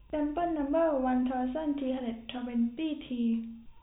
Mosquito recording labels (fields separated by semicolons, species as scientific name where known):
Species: no mosquito; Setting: cup